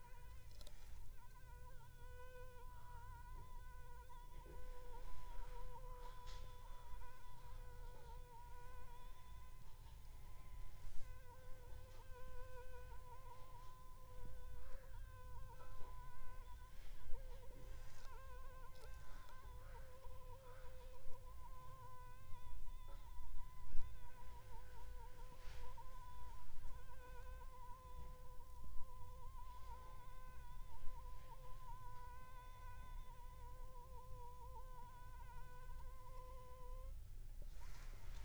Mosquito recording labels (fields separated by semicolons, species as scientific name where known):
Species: Anopheles funestus s.s.; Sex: female; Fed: unfed; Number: one; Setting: cup